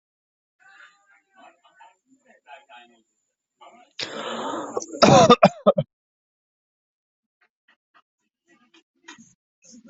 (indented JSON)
{
  "expert_labels": [
    {
      "quality": "ok",
      "cough_type": "dry",
      "dyspnea": true,
      "wheezing": false,
      "stridor": false,
      "choking": false,
      "congestion": false,
      "nothing": false,
      "diagnosis": "obstructive lung disease",
      "severity": "mild"
    }
  ],
  "age": 35,
  "gender": "male",
  "respiratory_condition": false,
  "fever_muscle_pain": false,
  "status": "healthy"
}